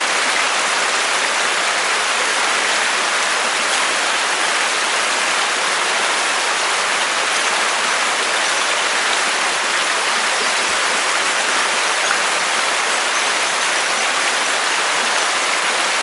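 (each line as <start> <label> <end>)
0.0 A large stream flows with a churning sound outdoors. 16.0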